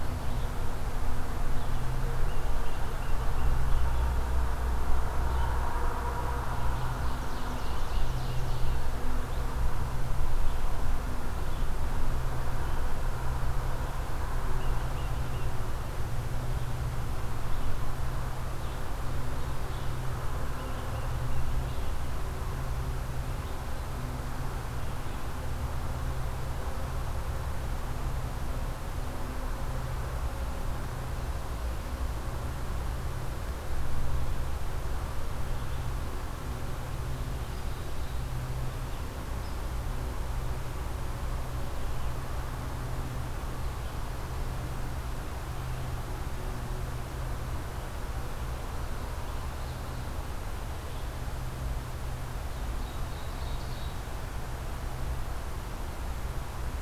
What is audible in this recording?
Tufted Titmouse, Ovenbird